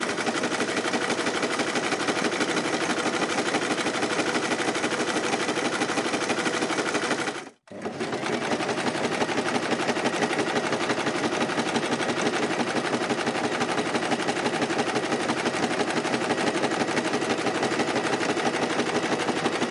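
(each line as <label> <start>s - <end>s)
A sewing machine hums rhythmically in a steady pattern. 0.0s - 19.7s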